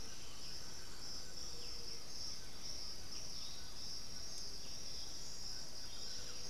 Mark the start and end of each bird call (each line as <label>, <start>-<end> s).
Thrush-like Wren (Campylorhynchus turdinus), 0.0-1.2 s
Black-billed Thrush (Turdus ignobilis), 0.0-6.5 s
White-throated Toucan (Ramphastos tucanus), 0.0-6.5 s
unidentified bird, 3.1-4.0 s
Buff-throated Saltator (Saltator maximus), 5.7-6.5 s